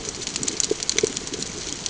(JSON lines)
{"label": "ambient", "recorder": "HydroMoth"}